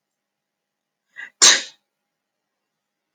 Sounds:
Sneeze